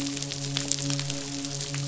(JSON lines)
{"label": "biophony, midshipman", "recorder": "SoundTrap 500"}